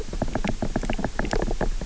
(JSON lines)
{"label": "biophony", "recorder": "SoundTrap 300"}